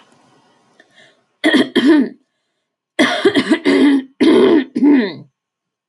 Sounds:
Throat clearing